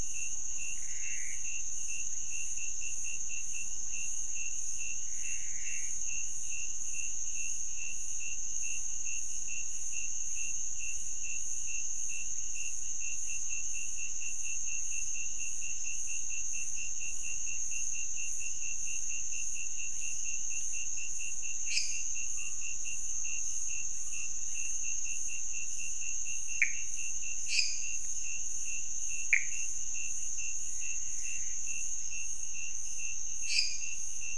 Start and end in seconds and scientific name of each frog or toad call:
0.8	1.5	Pithecopus azureus
4.9	6.1	Pithecopus azureus
21.5	22.2	Dendropsophus minutus
26.5	26.9	Pithecopus azureus
27.4	28.1	Dendropsophus minutus
29.2	29.9	Pithecopus azureus
33.4	34.2	Dendropsophus minutus